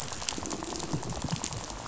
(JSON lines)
{"label": "biophony, rattle", "recorder": "SoundTrap 500"}